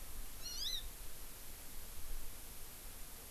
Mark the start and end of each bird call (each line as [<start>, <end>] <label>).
[0.38, 0.88] Hawaii Amakihi (Chlorodrepanis virens)